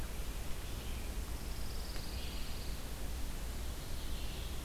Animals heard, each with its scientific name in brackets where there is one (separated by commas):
Pine Warbler (Setophaga pinus), Red-eyed Vireo (Vireo olivaceus)